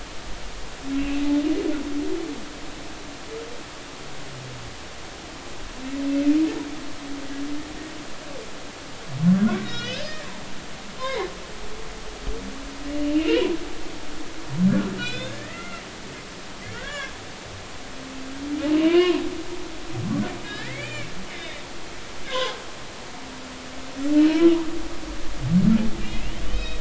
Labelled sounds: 0.9	1.2	humpback whale, 2.5 to 2.8 kHz
9.4	10.3	humpback whale, 1.3 to 6.0 kHz
11.0	11.3	humpback whale, 0.80 to 2.3 kHz
13.1	13.5	humpback whale, 2.4 to 3.1 kHz
15.0	15.9	humpback whale, 1.3 to 5.2 kHz
16.7	17.1	humpback whale, 1.0 to 3.4 kHz
18.7	19.3	humpback whale, 0.93 to 3.0 kHz
20.4	21.6	humpback whale, 1.6 to 2.5 kHz
22.2	22.6	humpback whale, 0.80 to 1.7 kHz
24.1	24.4	humpback whale, 2.8 to 3.1 kHz
26.0	26.7	humpback whale, 2.3 to 5.2 kHz

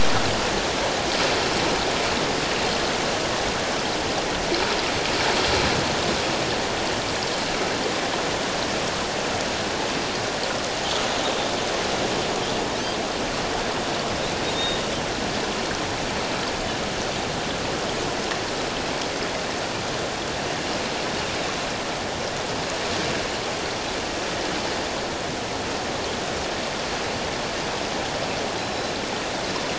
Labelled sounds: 14.5	14.8	Pacific white-sided dolphin, 3.6 to 3.8 kHz
28.6	28.9	Pacific white-sided dolphin, 3.9 to 4.1 kHz

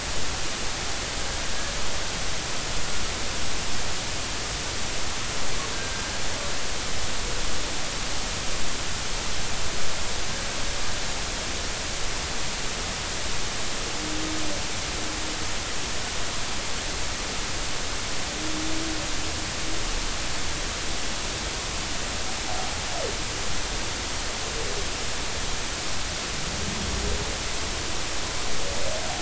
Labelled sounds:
5.7	6.1	humpback whale, 1.5 to 1.6 kHz

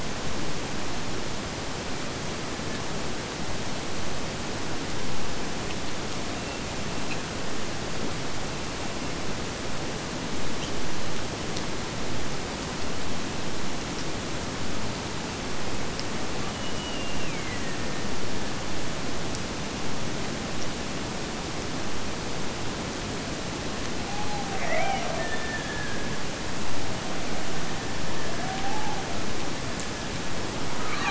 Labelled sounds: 16.5	18.1	killer whale, Bigg's (transient), Gulf of Alaska transient, 1.7 to 3.1 kHz
24.1	26.4	killer whale, Bigg's (transient), Gulf of Alaska transient, 0.51 to 2.5 kHz

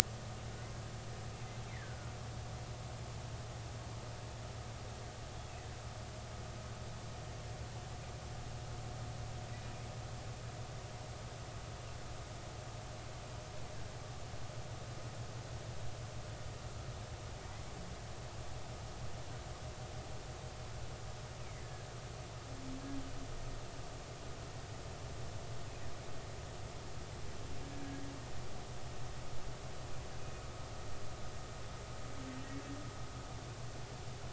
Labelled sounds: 1.7	2.1	humpback whale, 1.3 to 2.2 kHz
27.7	28.0	humpback whale, 1.6 to 1.7 kHz

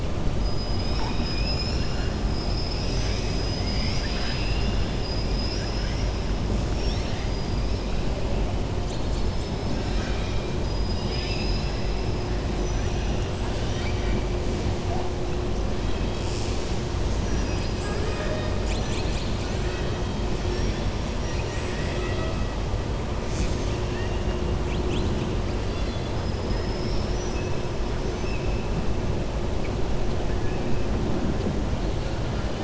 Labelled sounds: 0.7	2.1	killer whale, 0.89 to 7.1 kHz
5.3	6.1	killer whale, 4.1 to 6.2 kHz
6.7	7.3	killer whale, 1.9 to 6.4 kHz
10.6	12.1	killer whale, 1.8 to 6.6 kHz
12.5	13.1	killer whale, 5.6 to 6.1 kHz
13.5	14.2	killer whale, 1.4 to 6.3 kHz
17.7	18.3	killer whale, 6.6 to 8.0 kHz
21.1	22.4	killer whale, 0.66 to 8.0 kHz

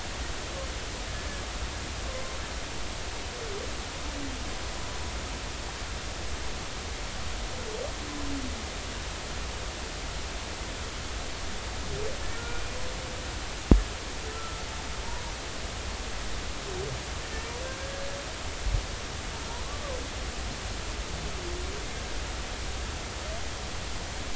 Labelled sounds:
1.1	1.4	humpback whale, 1.6 to 1.8 kHz
12.3	12.8	humpback whale, 1.3 to 2.5 kHz
14.3	14.6	humpback whale, 1.2 to 1.4 kHz

